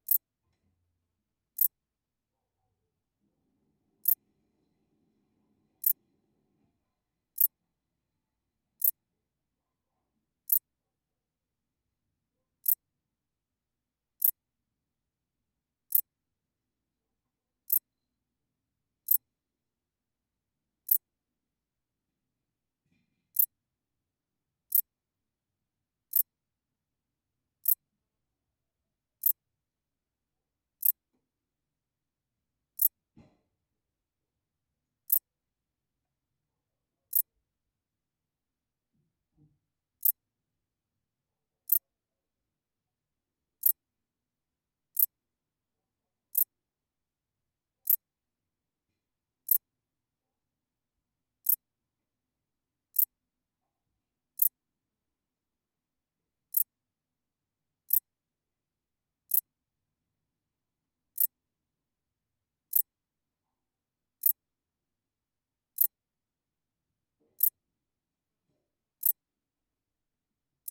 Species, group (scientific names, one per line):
Pholidoptera fallax
Orthoptera